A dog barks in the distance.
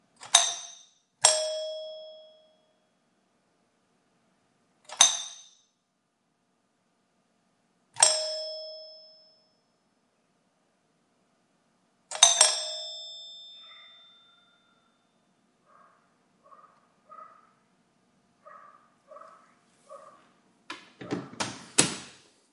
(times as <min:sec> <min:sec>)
0:14.1 0:20.4